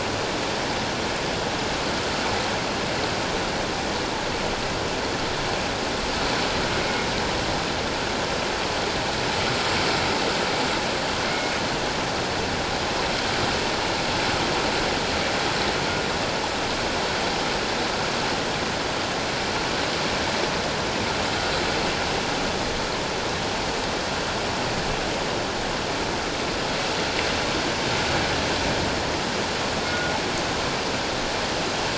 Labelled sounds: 6.8	7.1	killer whale, northern resident, G clan, 2.1 to 2.2 kHz
11.3	11.5	killer whale, northern resident, G clan, 2.1 to 2.2 kHz
29.9	30.1	killer whale, northern resident, G clan, 1.4 to 1.5 kHz

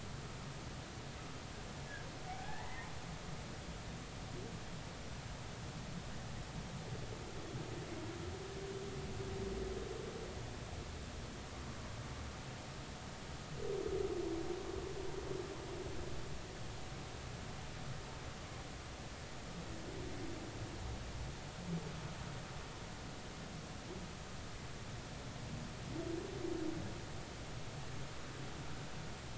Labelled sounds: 2.3	2.9	humpback whale, 0.80 to 2.2 kHz

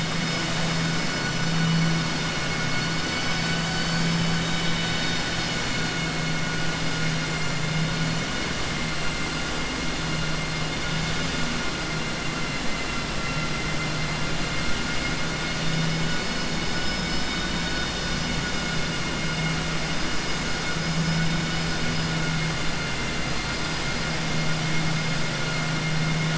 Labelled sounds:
14.4	15.9	vessel noise, 1.4 to 5.1 kHz

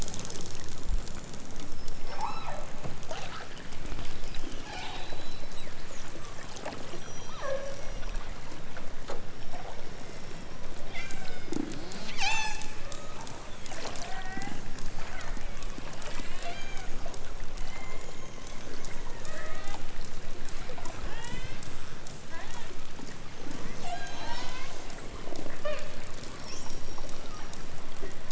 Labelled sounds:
2.1	2.6	killer whale, southern Alaska resident, 0.32 to 4.3 kHz
4.6	5.6	killer whale, southern Alaska resident, 0.46 to 8.0 kHz
6.1	8.3	killer whale, southern Alaska resident, 0.32 to 6.8 kHz
9.4	10.6	killer whale, southern Alaska resident, 1.5 to 5.7 kHz
10.9	11.7	killer whale, southern Alaska resident, 0.97 to 8.0 kHz
12.2	13.2	killer whale, southern Alaska resident, 0.51 to 8.0 kHz
13.8	14.6	killer whale, southern Alaska resident, 0.41 to 3.4 kHz
14.9	17.0	killer whale, southern Alaska resident, 0.46 to 5.2 kHz
17.5	18.6	killer whale, southern Alaska resident, 0.55 to 3.7 kHz
19.2	19.9	killer whale, southern Alaska resident, 0.51 to 4.1 kHz
20.9	21.7	killer whale, southern Alaska resident, 0.74 to 6.6 kHz
22.3	22.8	killer whale, southern Alaska resident, 0.37 to 4.9 kHz
23.4	24.8	killer whale, southern Alaska resident, 0.46 to 8.0 kHz
25.5	26.0	killer whale, southern Alaska resident, 0.28 to 5.4 kHz
26.3	27.6	killer whale, southern Alaska resident, 2.7 to 5.8 kHz

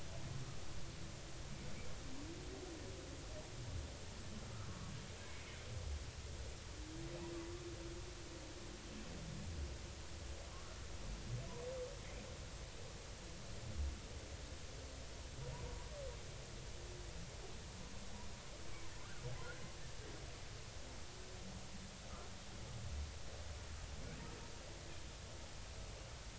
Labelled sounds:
4.7	4.9	humpback whale, 1.1 to 1.3 kHz

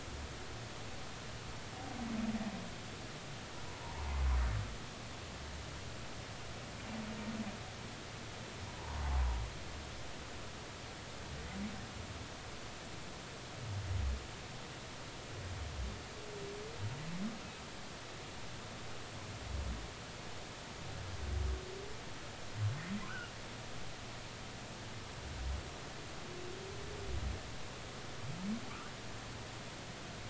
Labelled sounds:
8.7	9.0	humpback whale, 0.86 to 1.1 kHz

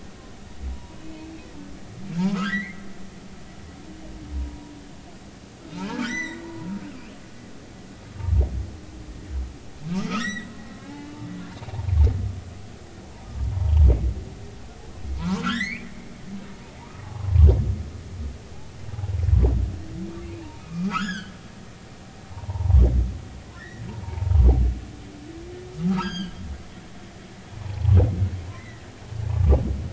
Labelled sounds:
0.7	1.3	humpback whale, 0.90 to 2.7 kHz
2.3	2.8	humpback whale, 1.2 to 2.4 kHz
4.3	4.8	humpback whale, 0.90 to 1.0 kHz
5.7	6.4	humpback whale, 0.86 to 6.1 kHz
10.1	11.2	humpback whale, 0.80 to 7.9 kHz
13.5	13.8	humpback whale, 0.86 to 1.1 kHz
15.2	15.9	humpback whale, 0.90 to 4.7 kHz
17.0	17.4	humpback whale, 1.0 to 1.2 kHz
20.6	21.3	humpback whale, 0.93 to 6.9 kHz
22.3	22.8	humpback whale, 0.80 to 1.2 kHz
23.6	24.3	humpback whale, 0.80 to 2.0 kHz
25.9	26.4	humpback whale, 1.2 to 8.0 kHz
27.6	28.0	humpback whale, 0.80 to 1.2 kHz
28.6	28.8	humpback whale, 1.8 to 2.1 kHz
29.3	29.6	humpback whale, 1.1 to 1.2 kHz

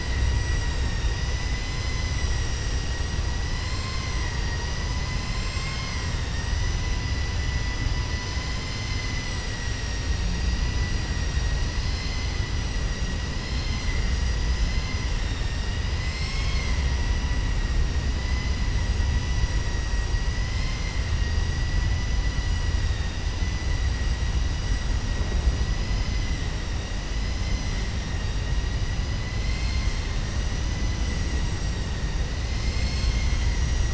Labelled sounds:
15.2	15.8	vessel noise, 1.8 to 5.6 kHz

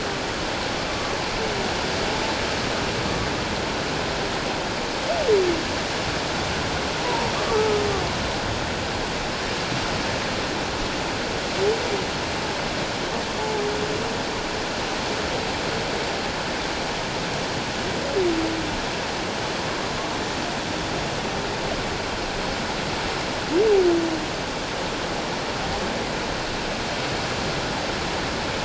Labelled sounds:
7.0	7.8	humpback whale, 0.88 to 1.3 kHz
13.4	13.6	humpback whale, 0.78 to 0.97 kHz

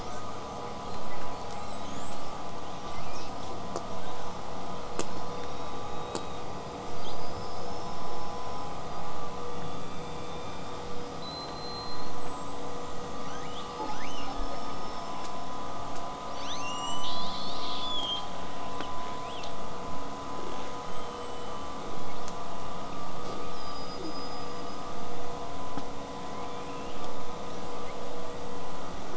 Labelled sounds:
1.2	3.4	killer whale, southern resident, 2.0 to 8.0 kHz
3.9	4.3	killer whale, southern resident, 5.4 to 8.0 kHz
5.1	6.5	killer whale, southern resident, 3.4 to 5.7 kHz
7.0	9.0	killer whale, southern resident, 3.0 to 5.7 kHz
11.2	12.6	killer whale, southern resident, 3.8 to 8.0 kHz
13.1	14.6	killer whale, southern resident, L pod, call S02iii, 1.3 to 8.0 kHz
13.7	15.6	killer whale, southern resident, 5.0 to 8.0 kHz
16.3	18.4	killer whale, southern resident, 1.3 to 8.0 kHz
18.7	19.5	killer whale, southern resident, 1.5 to 4.1 kHz
20.4	21.9	killer whale, southern resident, 1.4 to 8.0 kHz
23.1	24.9	killer whale, southern resident, 1.4 to 8.0 kHz
26.1	27.0	killer whale, southern resident, 1.8 to 3.7 kHz
27.9	28.3	killer whale, southern resident, whistle, 7.7 to 8.0 kHz

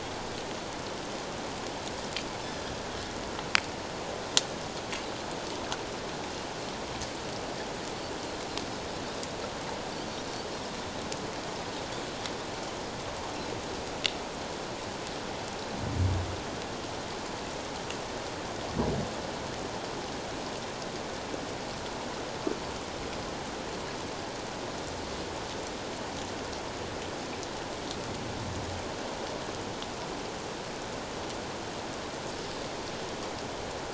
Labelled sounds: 2.4	2.7	Pacific white-sided dolphin, 4.8 to 5.4 kHz

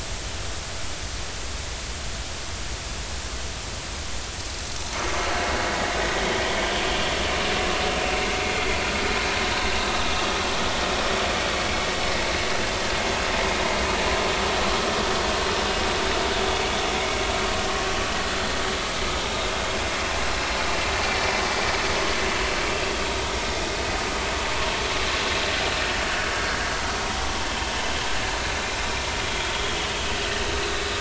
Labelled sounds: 26.3	26.6	vessel noise, 1.6 to 1.7 kHz

